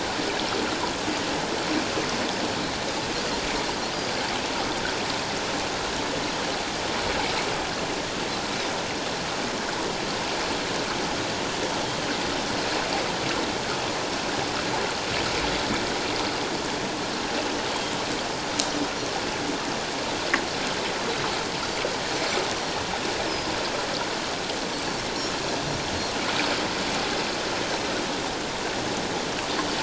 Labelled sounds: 23.2	23.5	Pacific white-sided dolphin, 4.8 to 5.3 kHz

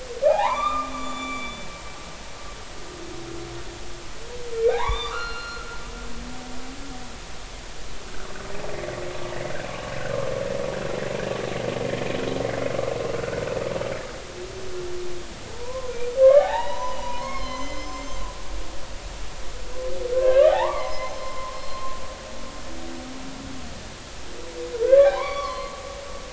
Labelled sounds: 0.2	1.6	humpback whale, 0.80 to 7.1 kHz
4.6	5.8	humpback whale, 0.80 to 4.4 kHz
13.2	13.4	humpback whale, 1.3 to 1.7 kHz
15.5	18.2	humpback whale, 0.80 to 7.4 kHz
20.1	21.8	humpback whale, 0.80 to 6.2 kHz
24.8	25.8	humpback whale, 0.80 to 4.7 kHz

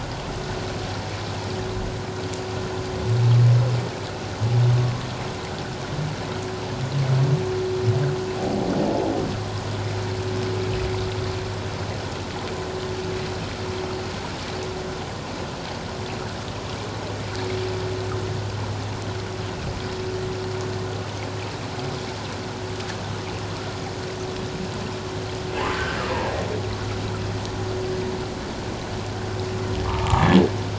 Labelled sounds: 8.4	8.6	humpback whale, 0.78 to 0.84 kHz
29.8	30.3	humpback whale, 0.78 to 1.3 kHz

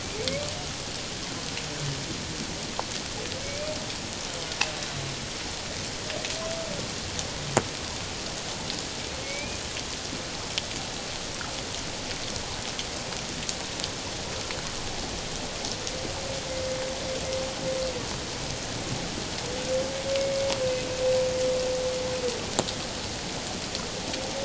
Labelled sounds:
3.4	3.7	humpback whale, 2.2 to 2.5 kHz
9.2	9.6	humpback whale, 2.1 to 2.5 kHz

